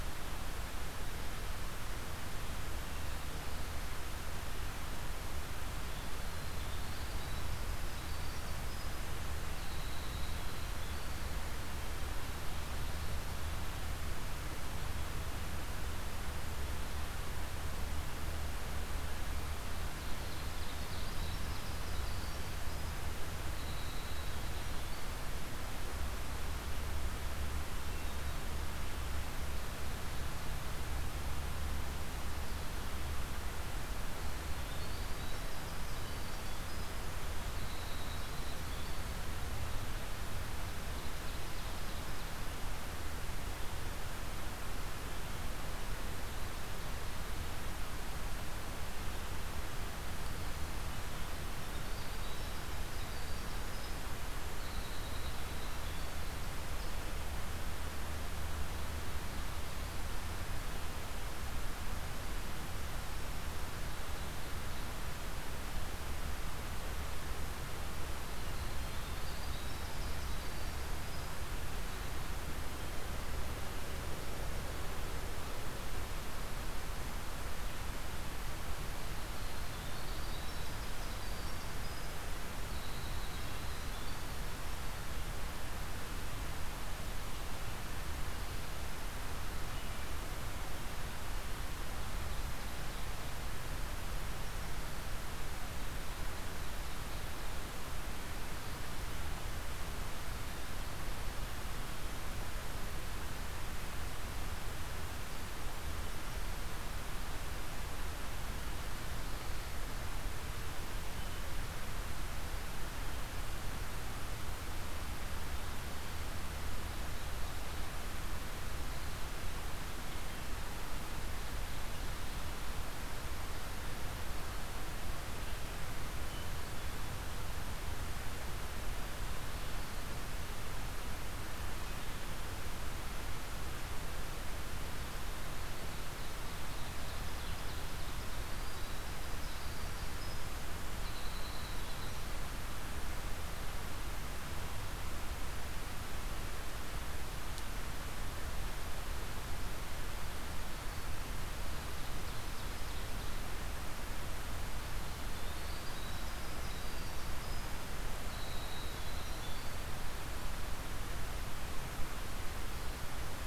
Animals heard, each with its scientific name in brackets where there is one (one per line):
Winter Wren (Troglodytes hiemalis)
Ovenbird (Seiurus aurocapilla)